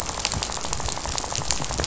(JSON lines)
{"label": "biophony, rattle", "recorder": "SoundTrap 500"}